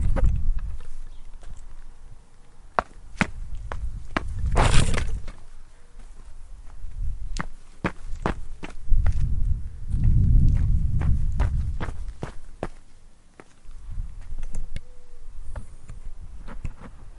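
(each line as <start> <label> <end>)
2.7 Footsteps on a concrete floor. 5.4
7.7 Footsteps on the ground outside. 10.0
10.1 Wind blowing softly in the distance. 11.6
11.6 Footsteps walking on the ground outside. 13.9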